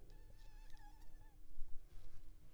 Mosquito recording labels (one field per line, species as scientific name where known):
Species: Culex pipiens complex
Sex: male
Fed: unfed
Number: one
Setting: cup